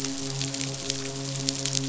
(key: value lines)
label: biophony, midshipman
recorder: SoundTrap 500